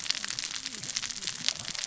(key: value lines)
label: biophony, cascading saw
recorder: SoundTrap 600 or HydroMoth